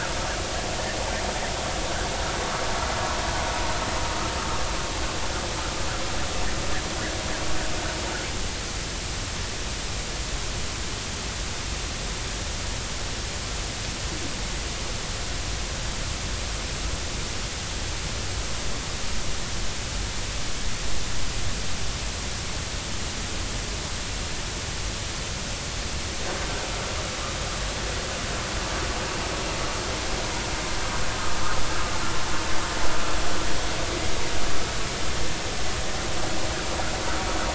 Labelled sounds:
4.1	4.3	vessel noise, 1.2 to 1.4 kHz

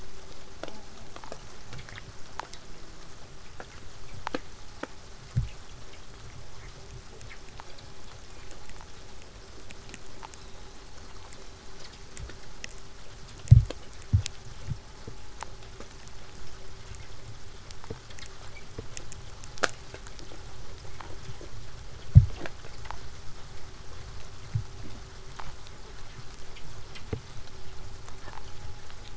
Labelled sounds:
0.6	1.2	killer whale, southern resident, J pod, call S04, 0.15 to 1.0 kHz
10.2	12.4	killer whale, southern resident, whistle, 3.1 to 8.0 kHz

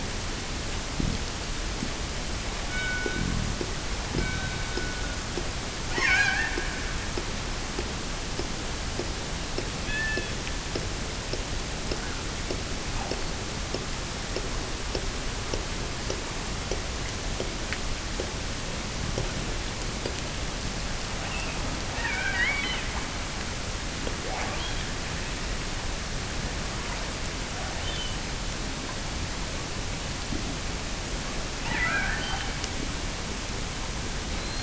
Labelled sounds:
2.6	3.4	killer whale, offshore, 1.2 to 3.9 kHz
4.0	5.2	killer whale, offshore, 1.3 to 4.0 kHz
5.9	7.1	killer whale, offshore, 0.57 to 7.7 kHz
9.8	10.4	killer whale, offshore, 1.5 to 4.7 kHz
21.8	23.0	killer whale, offshore, 0.43 to 5.0 kHz
24.2	24.9	killer whale, offshore, 0.48 to 3.6 kHz
27.6	28.2	killer whale, offshore, 1.5 to 3.8 kHz
31.6	32.8	killer whale, offshore, 0.32 to 4.8 kHz

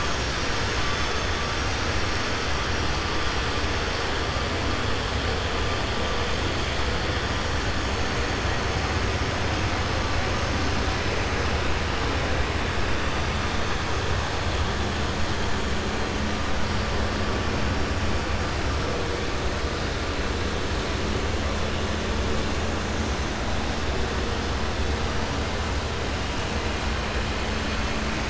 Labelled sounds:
0.8	1.3	vessel noise, 4.3 to 6.8 kHz

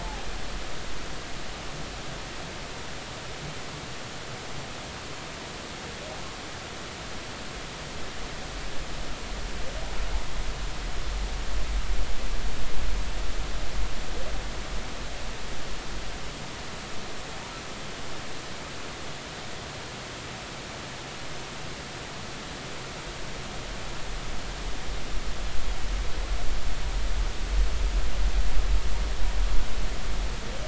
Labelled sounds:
0.0	0.2	humpback whale, 0.80 to 0.93 kHz

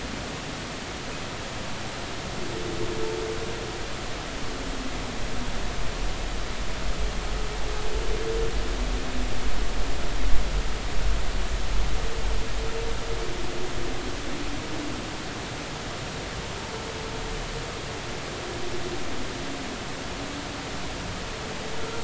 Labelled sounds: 21.8	22.0	humpback whale, 1.3 to 1.4 kHz

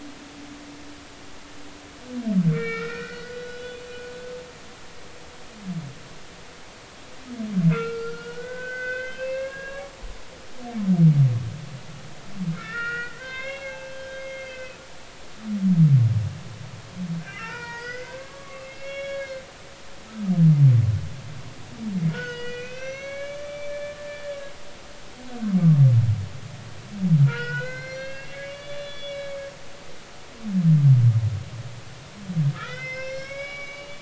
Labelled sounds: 2.5	4.2	humpback whale, 1.2 to 4.0 kHz
4.5	4.8	humpback whale, 2.9 to 3.0 kHz
7.7	9.8	humpback whale, 1.3 to 5.2 kHz
12.5	14.8	humpback whale, 0.80 to 5.6 kHz
17.2	19.4	humpback whale, 0.86 to 5.6 kHz
22.1	24.5	humpback whale, 1.4 to 6.2 kHz
27.3	30.2	humpback whale, 1.2 to 5.9 kHz
32.5	34.0	humpback whale, 1.1 to 6.0 kHz

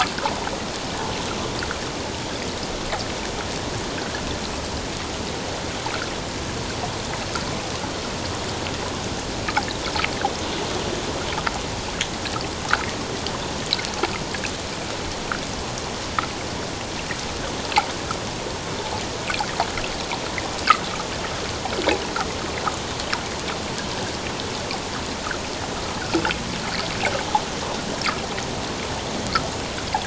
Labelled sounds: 26.0	26.2	water noise, 1.3 to 1.7 kHz

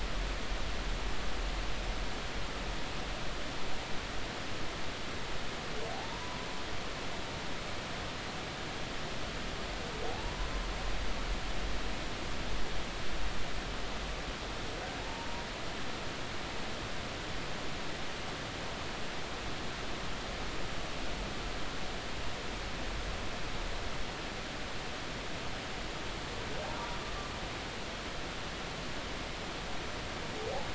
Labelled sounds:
5.9	6.5	humpback whale, 0.80 to 1.0 kHz
10.1	10.5	humpback whale, 0.80 to 1.1 kHz
15.0	15.3	humpback whale, 0.80 to 0.99 kHz

